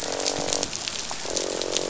{"label": "biophony, croak", "recorder": "SoundTrap 500"}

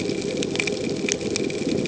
{"label": "ambient", "recorder": "HydroMoth"}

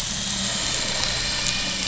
{"label": "anthrophony, boat engine", "recorder": "SoundTrap 500"}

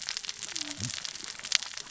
{"label": "biophony, cascading saw", "recorder": "SoundTrap 600 or HydroMoth"}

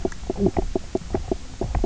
{"label": "biophony, knock croak", "recorder": "SoundTrap 300"}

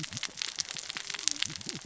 {"label": "biophony, cascading saw", "recorder": "SoundTrap 600 or HydroMoth"}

